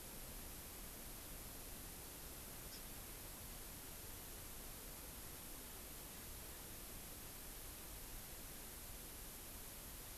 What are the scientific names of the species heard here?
Chlorodrepanis virens